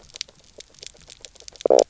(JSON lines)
{"label": "biophony, knock croak", "recorder": "SoundTrap 300"}
{"label": "biophony, grazing", "recorder": "SoundTrap 300"}